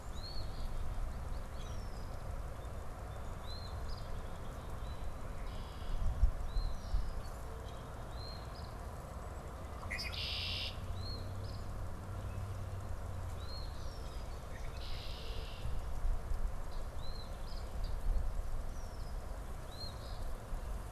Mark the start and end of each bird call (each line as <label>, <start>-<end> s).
Eastern Phoebe (Sayornis phoebe), 0.0-0.8 s
Red-winged Blackbird (Agelaius phoeniceus), 1.4-2.1 s
Eastern Phoebe (Sayornis phoebe), 3.4-4.2 s
Red-winged Blackbird (Agelaius phoeniceus), 5.2-6.2 s
Eastern Phoebe (Sayornis phoebe), 6.1-7.0 s
Red-winged Blackbird (Agelaius phoeniceus), 6.5-7.5 s
Eastern Phoebe (Sayornis phoebe), 7.9-8.8 s
Red-winged Blackbird (Agelaius phoeniceus), 9.7-10.9 s
Eastern Phoebe (Sayornis phoebe), 10.9-11.7 s
Eastern Phoebe (Sayornis phoebe), 13.4-14.0 s
Red-winged Blackbird (Agelaius phoeniceus), 14.3-15.8 s
Eastern Phoebe (Sayornis phoebe), 16.8-17.8 s
Red-winged Blackbird (Agelaius phoeniceus), 18.6-19.2 s
Eastern Phoebe (Sayornis phoebe), 19.6-20.3 s